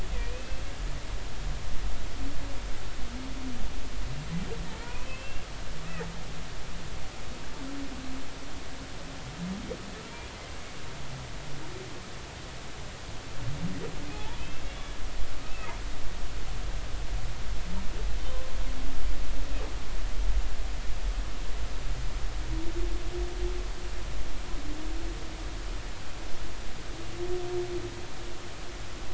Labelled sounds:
0.2	0.6	humpback whale, 2.3 to 2.7 kHz
4.8	5.5	humpback whale, 0.90 to 2.8 kHz
14.1	14.6	humpback whale, 0.80 to 2.7 kHz
15.4	15.7	humpback whale, 2.5 to 2.7 kHz

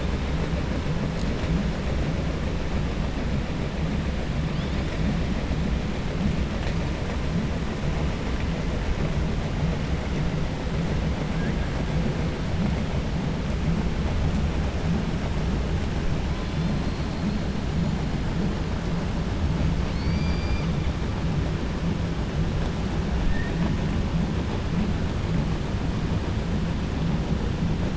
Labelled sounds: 19.8	20.7	killer whale, 2.2 to 5.9 kHz

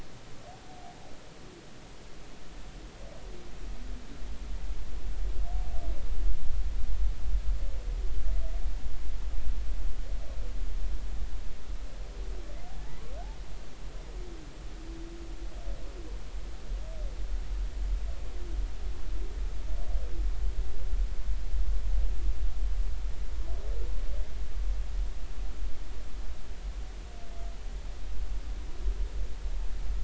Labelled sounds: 12.8	13.1	humpback whale, 0.80 to 1.2 kHz

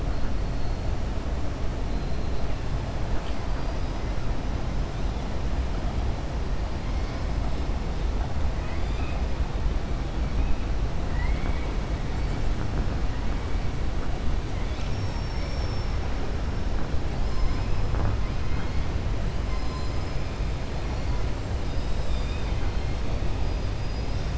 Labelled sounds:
8.5	9.2	killer whale, 1.3 to 4.9 kHz
11.0	11.7	killer whale, 0.95 to 2.9 kHz
21.6	22.7	killer whale, 1.2 to 5.4 kHz

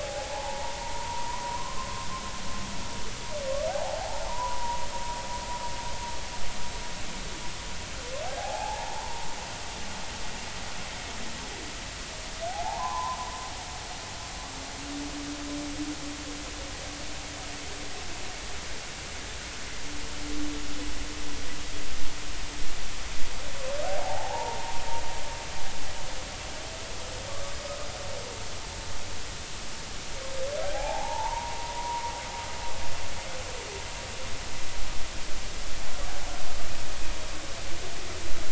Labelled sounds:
0.0	1.9	humpback whale, 0.80 to 1.1 kHz
3.7	4.8	humpback whale, 0.80 to 1.1 kHz
8.3	9.3	humpback whale, 0.80 to 1.0 kHz
12.5	13.2	humpback whale, 0.80 to 1.2 kHz
23.8	24.8	humpback whale, 0.80 to 0.99 kHz
30.7	32.1	humpback whale, 0.80 to 1.1 kHz

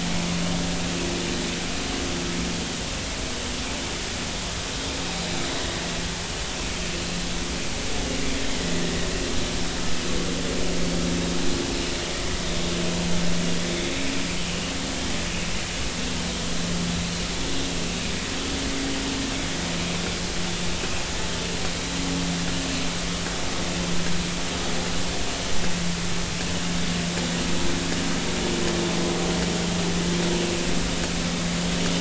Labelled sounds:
5.1	5.3	vessel noise, 3.7 to 4.1 kHz

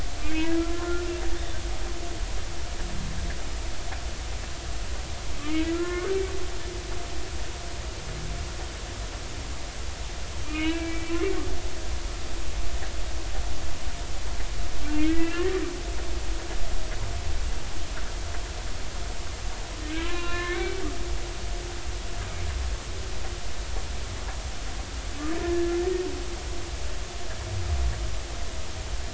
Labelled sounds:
0.2	1.0	humpback whale, 1.3 to 3.0 kHz
5.5	6.2	humpback whale, 1.0 to 2.3 kHz
10.5	11.2	humpback whale, 1.2 to 2.7 kHz
14.9	15.6	humpback whale, 1.6 to 2.9 kHz
20.0	20.8	humpback whale, 0.99 to 4.0 kHz
25.4	25.7	humpback whale, 1.7 to 1.9 kHz

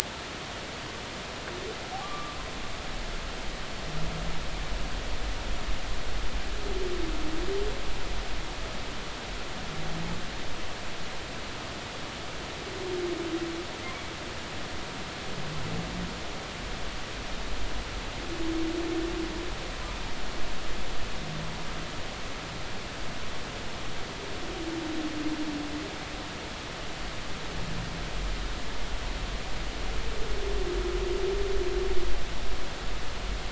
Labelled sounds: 2.0	2.4	humpback whale, 1.0 to 1.3 kHz

